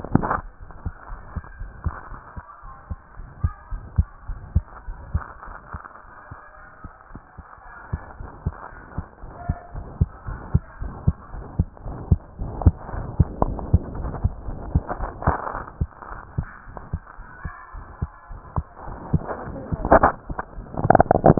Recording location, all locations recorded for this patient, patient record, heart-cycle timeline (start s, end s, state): aortic valve (AV)
aortic valve (AV)+pulmonary valve (PV)+tricuspid valve (TV)+mitral valve (MV)
#Age: Child
#Sex: Male
#Height: 124.0 cm
#Weight: 22.1 kg
#Pregnancy status: False
#Murmur: Present
#Murmur locations: aortic valve (AV)+mitral valve (MV)+pulmonary valve (PV)+tricuspid valve (TV)
#Most audible location: tricuspid valve (TV)
#Systolic murmur timing: Holosystolic
#Systolic murmur shape: Plateau
#Systolic murmur grading: II/VI
#Systolic murmur pitch: Medium
#Systolic murmur quality: Harsh
#Diastolic murmur timing: nan
#Diastolic murmur shape: nan
#Diastolic murmur grading: nan
#Diastolic murmur pitch: nan
#Diastolic murmur quality: nan
#Outcome: Abnormal
#Campaign: 2015 screening campaign
0.00	1.06	unannotated
1.06	1.20	S1
1.20	1.32	systole
1.32	1.42	S2
1.42	1.59	diastole
1.59	1.69	S1
1.69	1.84	systole
1.84	1.96	S2
1.96	2.12	diastole
2.12	2.20	S1
2.20	2.36	systole
2.36	2.42	S2
2.42	2.62	diastole
2.62	2.72	S1
2.72	2.90	systole
2.90	3.00	S2
3.00	3.18	diastole
3.18	3.28	S1
3.28	3.40	systole
3.40	3.54	S2
3.54	3.69	diastole
3.69	3.81	S1
3.81	3.95	systole
3.95	4.06	S2
4.06	4.27	diastole
4.27	4.40	S1
4.40	4.52	systole
4.52	4.66	S2
4.66	4.85	diastole
4.85	4.95	S1
4.95	5.10	systole
5.10	5.24	S2
5.24	5.42	diastole
5.42	5.54	S1
5.54	5.70	systole
5.70	5.80	S2
5.80	5.98	diastole
5.98	6.08	S1
6.08	6.26	systole
6.26	6.36	S2
6.36	6.54	diastole
6.54	6.64	S1
6.64	6.80	systole
6.80	6.90	S2
6.90	7.10	diastole
7.10	7.20	S1
7.20	7.38	systole
7.38	7.44	S2
7.44	7.59	diastole
7.59	7.72	S1
7.72	7.92	systole
7.92	8.02	S2
8.02	8.20	diastole
8.20	8.30	S1
8.30	8.42	systole
8.42	8.56	S2
8.56	8.73	diastole
8.73	8.82	S1
8.82	8.96	systole
8.96	9.05	S2
9.05	9.21	diastole
9.21	9.30	S1
9.30	9.48	systole
9.48	9.56	S2
9.56	9.74	diastole
9.74	9.86	S1
9.86	9.98	systole
9.98	10.12	S2
10.12	10.28	diastole
10.28	10.40	S1
10.40	10.52	systole
10.52	10.62	S2
10.62	10.80	diastole
10.80	10.94	S1
10.94	11.04	systole
11.04	11.18	S2
11.18	11.32	diastole
11.32	11.46	S1
11.46	11.57	systole
11.57	11.66	S2
11.66	11.84	diastole
11.84	11.94	S1
11.94	12.10	systole
12.10	12.21	S2
12.21	12.38	diastole
12.38	12.48	S1
12.48	12.64	systole
12.64	12.80	S2
12.80	21.39	unannotated